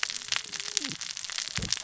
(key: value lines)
label: biophony, cascading saw
recorder: SoundTrap 600 or HydroMoth